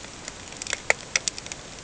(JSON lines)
{"label": "ambient", "recorder": "HydroMoth"}